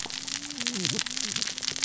{"label": "biophony, cascading saw", "recorder": "SoundTrap 600 or HydroMoth"}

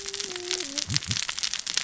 {"label": "biophony, cascading saw", "recorder": "SoundTrap 600 or HydroMoth"}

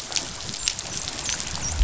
{"label": "biophony, dolphin", "recorder": "SoundTrap 500"}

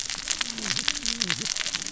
{"label": "biophony, cascading saw", "recorder": "SoundTrap 600 or HydroMoth"}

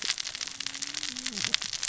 {"label": "biophony, cascading saw", "recorder": "SoundTrap 600 or HydroMoth"}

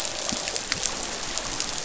{"label": "biophony, croak", "recorder": "SoundTrap 500"}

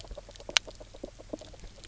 {"label": "biophony, knock croak", "recorder": "SoundTrap 300"}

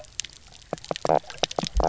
{"label": "biophony, knock croak", "recorder": "SoundTrap 300"}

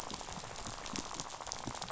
{"label": "biophony, rattle", "recorder": "SoundTrap 500"}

